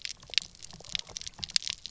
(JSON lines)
{"label": "biophony, pulse", "recorder": "SoundTrap 300"}